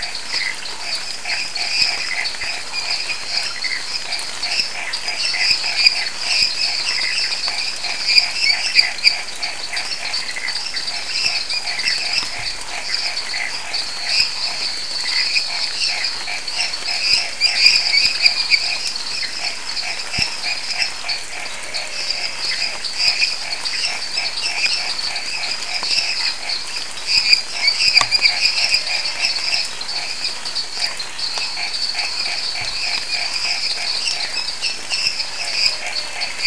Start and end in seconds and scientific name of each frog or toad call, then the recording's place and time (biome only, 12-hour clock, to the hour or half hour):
0.0	36.4	Boana raniceps
0.0	36.4	Dendropsophus minutus
0.0	36.4	Dendropsophus nanus
0.0	36.4	Pithecopus azureus
2.5	4.7	Elachistocleis matogrosso
13.7	16.5	Elachistocleis matogrosso
27.2	33.8	Elachistocleis matogrosso
Cerrado, ~9pm